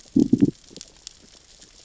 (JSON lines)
{"label": "biophony, growl", "recorder": "SoundTrap 600 or HydroMoth"}